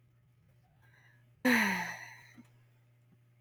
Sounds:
Sigh